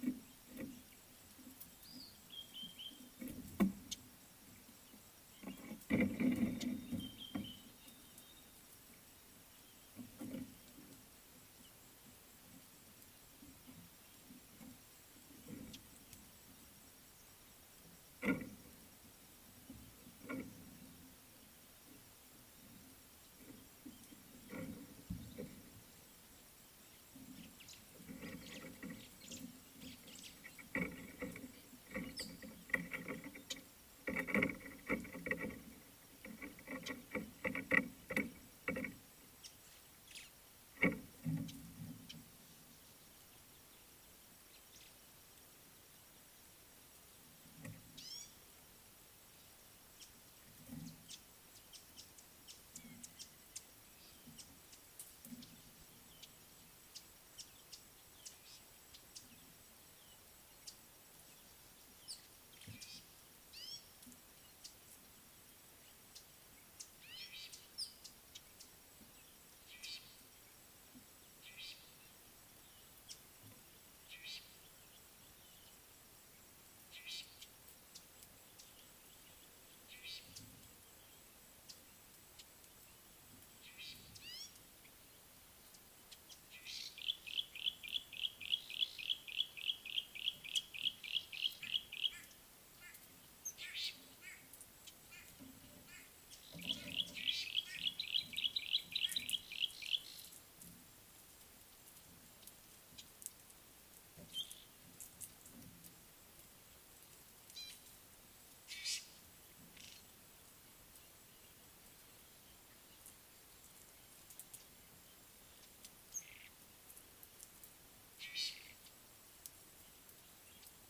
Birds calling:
Fork-tailed Drongo (Dicrurus adsimilis), White-browed Sparrow-Weaver (Plocepasser mahali), Lesser Masked-Weaver (Ploceus intermedius), Red-headed Weaver (Anaplectes rubriceps), Yellow-breasted Apalis (Apalis flavida), Somali Tit (Melaniparus thruppi), Gray-backed Camaroptera (Camaroptera brevicaudata), Red-backed Scrub-Robin (Cercotrichas leucophrys), White-bellied Go-away-bird (Corythaixoides leucogaster)

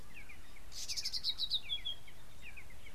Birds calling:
Red-backed Scrub-Robin (Cercotrichas leucophrys)

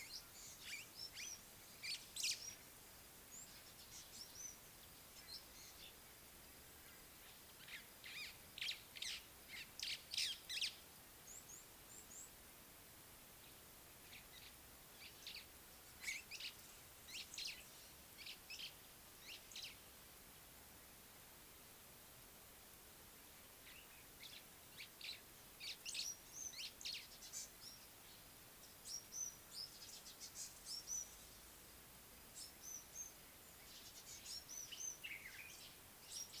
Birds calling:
Common Bulbul (Pycnonotus barbatus), Red-cheeked Cordonbleu (Uraeginthus bengalus), African Gray Flycatcher (Bradornis microrhynchus), White-browed Sparrow-Weaver (Plocepasser mahali)

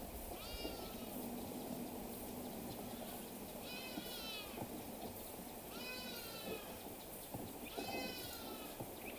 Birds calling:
Hadada Ibis (Bostrychia hagedash)

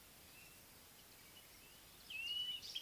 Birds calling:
Blue-naped Mousebird (Urocolius macrourus)

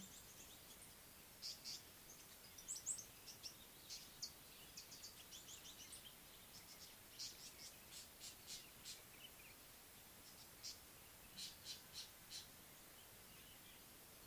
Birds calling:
Northern Puffback (Dryoscopus gambensis), Mariqua Sunbird (Cinnyris mariquensis)

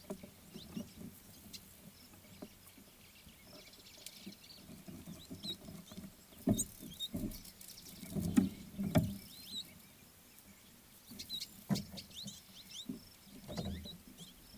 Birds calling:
Red-cheeked Cordonbleu (Uraeginthus bengalus), Red-billed Firefinch (Lagonosticta senegala)

